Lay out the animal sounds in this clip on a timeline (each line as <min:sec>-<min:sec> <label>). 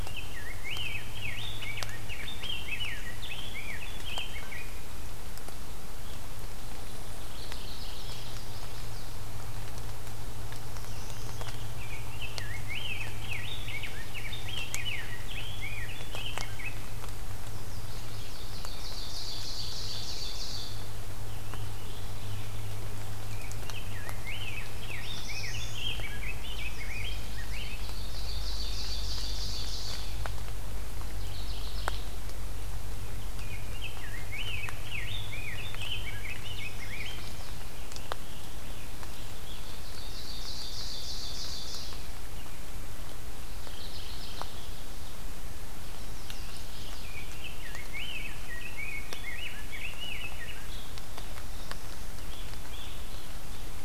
0:00.0-0:04.8 Rose-breasted Grosbeak (Pheucticus ludovicianus)
0:07.2-0:08.3 Mourning Warbler (Geothlypis philadelphia)
0:08.0-0:09.3 Chestnut-sided Warbler (Setophaga pensylvanica)
0:10.4-0:11.6 Black-throated Blue Warbler (Setophaga caerulescens)
0:10.8-0:16.8 Rose-breasted Grosbeak (Pheucticus ludovicianus)
0:17.3-0:18.5 Chestnut-sided Warbler (Setophaga pensylvanica)
0:18.1-0:20.8 Ovenbird (Seiurus aurocapilla)
0:21.0-0:22.7 Scarlet Tanager (Piranga olivacea)
0:23.3-0:27.7 Rose-breasted Grosbeak (Pheucticus ludovicianus)
0:24.5-0:25.9 Black-throated Blue Warbler (Setophaga caerulescens)
0:26.4-0:27.7 Chestnut-sided Warbler (Setophaga pensylvanica)
0:27.4-0:30.2 Ovenbird (Seiurus aurocapilla)
0:30.9-0:32.2 Mourning Warbler (Geothlypis philadelphia)
0:33.3-0:37.2 Rose-breasted Grosbeak (Pheucticus ludovicianus)
0:36.3-0:37.6 Chestnut-sided Warbler (Setophaga pensylvanica)
0:37.5-0:39.7 Scarlet Tanager (Piranga olivacea)
0:39.5-0:42.1 Ovenbird (Seiurus aurocapilla)
0:43.5-0:44.7 Mourning Warbler (Geothlypis philadelphia)
0:45.6-0:47.1 Chestnut-sided Warbler (Setophaga pensylvanica)
0:47.0-0:50.6 Rose-breasted Grosbeak (Pheucticus ludovicianus)
0:50.5-0:51.0 Evening Grosbeak (Coccothraustes vespertinus)
0:52.1-0:53.1 Evening Grosbeak (Coccothraustes vespertinus)